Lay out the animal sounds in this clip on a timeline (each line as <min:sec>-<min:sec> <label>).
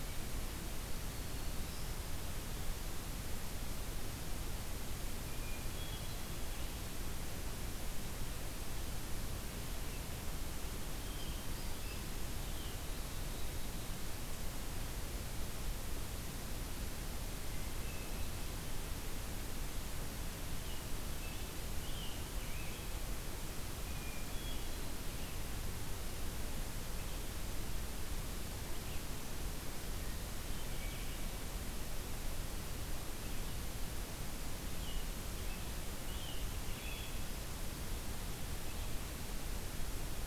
0:00.7-0:02.1 Black-throated Green Warbler (Setophaga virens)
0:05.2-0:06.5 Hermit Thrush (Catharus guttatus)
0:10.6-0:12.2 Hermit Thrush (Catharus guttatus)
0:11.7-0:12.7 American Robin (Turdus migratorius)
0:12.7-0:14.1 Black-capped Chickadee (Poecile atricapillus)
0:17.7-0:18.7 Hermit Thrush (Catharus guttatus)
0:20.5-0:23.1 American Robin (Turdus migratorius)
0:23.8-0:25.1 Hermit Thrush (Catharus guttatus)
0:26.9-0:40.3 Red-eyed Vireo (Vireo olivaceus)
0:29.8-0:31.4 Hermit Thrush (Catharus guttatus)
0:34.6-0:37.4 American Robin (Turdus migratorius)